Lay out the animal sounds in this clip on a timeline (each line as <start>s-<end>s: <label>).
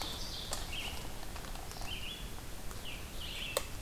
0.0s-0.7s: Ovenbird (Seiurus aurocapilla)
0.0s-3.8s: Red-eyed Vireo (Vireo olivaceus)
2.7s-3.8s: Scarlet Tanager (Piranga olivacea)